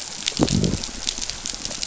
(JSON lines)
{"label": "biophony", "recorder": "SoundTrap 500"}